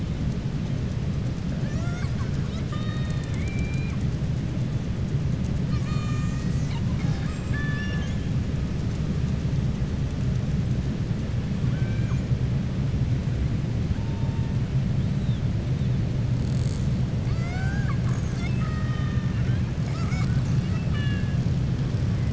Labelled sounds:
1.5	4.0	killer whale, southern resident, 0.71 to 7.7 kHz
11.6	12.2	killer whale, southern resident, 0.56 to 3.3 kHz
17.2	19.6	killer whale, southern resident, 0.71 to 7.9 kHz
20.5	21.4	killer whale, southern resident, 1.2 to 4.0 kHz

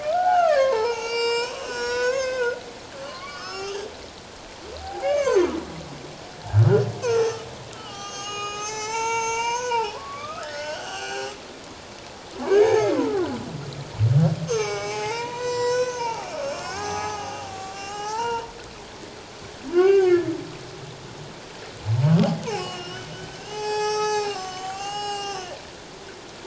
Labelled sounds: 0.0	2.6	humpback whale, 0.78 to 7.9 kHz
3.0	3.9	humpback whale, 1.0 to 5.6 kHz
4.8	5.5	humpback whale, 0.78 to 6.5 kHz
7.0	11.3	humpback whale, 0.78 to 7.7 kHz
12.4	13.3	humpback whale, 0.78 to 6.6 kHz
14.5	18.5	humpback whale, 0.78 to 7.9 kHz
19.7	20.2	humpback whale, 0.78 to 6.5 kHz
22.4	23.1	humpback whale, 2.2 to 5.6 kHz
23.4	25.5	humpback whale, 0.78 to 8.0 kHz

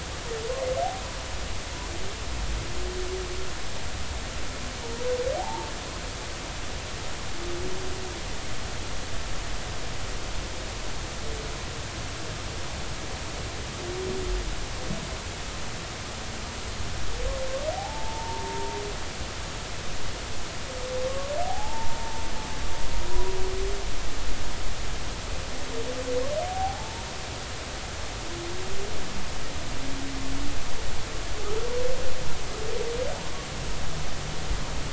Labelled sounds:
5.4	5.7	humpback whale, 0.80 to 0.96 kHz
17.7	18.8	humpback whale, 0.80 to 1.1 kHz
21.4	22.2	humpback whale, 0.80 to 0.96 kHz
26.4	27.0	humpback whale, 0.80 to 0.96 kHz

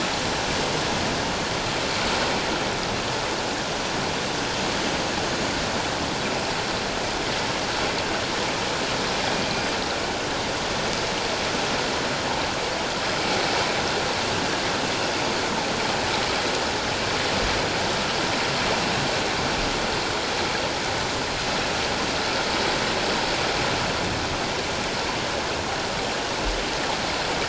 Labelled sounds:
9.4	9.8	killer whale, northern resident, G clan, 4.8 to 4.9 kHz

